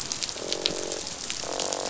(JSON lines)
{"label": "biophony, croak", "recorder": "SoundTrap 500"}